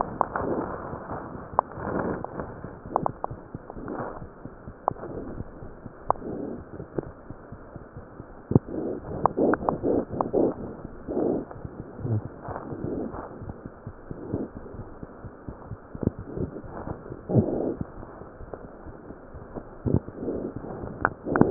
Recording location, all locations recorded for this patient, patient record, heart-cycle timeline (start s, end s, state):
mitral valve (MV)
aortic valve (AV)+pulmonary valve (PV)+tricuspid valve (TV)+mitral valve (MV)
#Age: Infant
#Sex: Male
#Height: 72.0 cm
#Weight: 8.3 kg
#Pregnancy status: False
#Murmur: Absent
#Murmur locations: nan
#Most audible location: nan
#Systolic murmur timing: nan
#Systolic murmur shape: nan
#Systolic murmur grading: nan
#Systolic murmur pitch: nan
#Systolic murmur quality: nan
#Diastolic murmur timing: nan
#Diastolic murmur shape: nan
#Diastolic murmur grading: nan
#Diastolic murmur pitch: nan
#Diastolic murmur quality: nan
#Outcome: Abnormal
#Campaign: 2015 screening campaign
0.00	13.71	unannotated
13.71	13.84	diastole
13.84	13.94	S1
13.94	14.08	systole
14.08	14.15	S2
14.15	14.32	diastole
14.32	14.39	S1
14.39	14.54	systole
14.54	14.61	S2
14.61	14.76	diastole
14.76	14.84	S1
14.84	15.01	systole
15.01	15.08	S2
15.08	15.23	diastole
15.23	15.31	S1
15.31	15.47	systole
15.47	15.53	S2
15.53	15.70	diastole
15.70	15.76	S1
15.76	15.92	systole
15.92	16.00	S2
16.00	16.17	diastole
16.17	16.26	S1
16.26	16.36	systole
16.36	16.45	S2
16.45	16.62	diastole
16.62	16.70	S1
16.70	16.83	systole
16.83	16.94	S2
16.94	17.10	diastole
17.10	21.50	unannotated